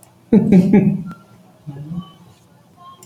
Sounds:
Laughter